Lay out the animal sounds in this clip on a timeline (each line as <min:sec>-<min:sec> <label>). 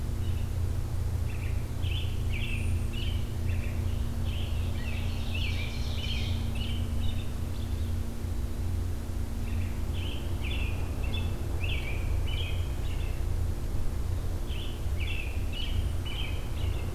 0:00.1-0:00.5 American Robin (Turdus migratorius)
0:01.2-0:08.0 American Robin (Turdus migratorius)
0:04.6-0:06.5 Ovenbird (Seiurus aurocapilla)
0:09.4-0:13.2 American Robin (Turdus migratorius)
0:14.4-0:16.9 American Robin (Turdus migratorius)